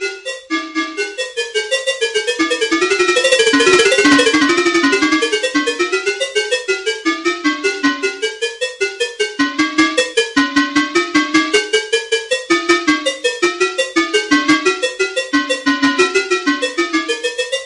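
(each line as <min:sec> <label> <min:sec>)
0:00.1 Metallic sounds repeating rhythmically. 0:17.7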